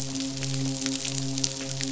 {"label": "biophony, midshipman", "recorder": "SoundTrap 500"}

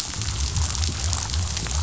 {"label": "biophony", "recorder": "SoundTrap 500"}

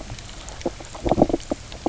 {"label": "biophony, knock croak", "recorder": "SoundTrap 300"}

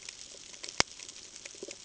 {"label": "ambient", "recorder": "HydroMoth"}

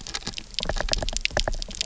{"label": "biophony, knock", "recorder": "SoundTrap 300"}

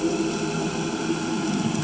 {"label": "anthrophony, boat engine", "recorder": "HydroMoth"}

